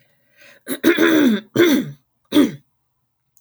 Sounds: Throat clearing